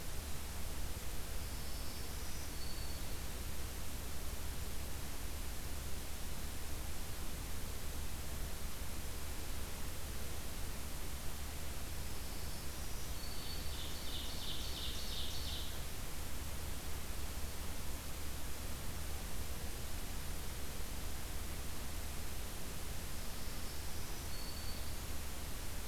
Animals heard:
Black-throated Green Warbler (Setophaga virens)
Ovenbird (Seiurus aurocapilla)

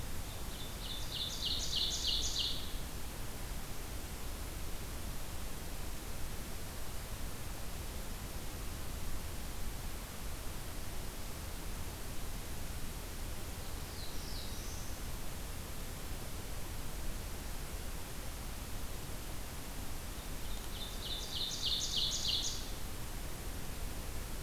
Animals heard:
Ovenbird (Seiurus aurocapilla)
Black-throated Blue Warbler (Setophaga caerulescens)

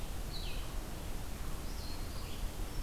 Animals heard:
Red-eyed Vireo (Vireo olivaceus)

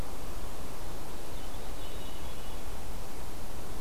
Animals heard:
Wood Thrush (Hylocichla mustelina)
Black-capped Chickadee (Poecile atricapillus)

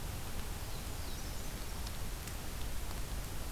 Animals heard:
Black-throated Blue Warbler (Setophaga caerulescens)
Brown Creeper (Certhia americana)

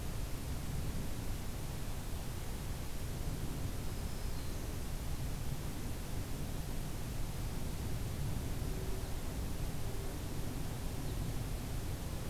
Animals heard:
Black-throated Green Warbler (Setophaga virens)

